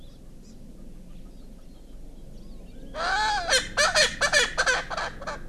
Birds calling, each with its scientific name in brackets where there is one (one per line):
Hawaii Amakihi (Chlorodrepanis virens)
Erckel's Francolin (Pternistis erckelii)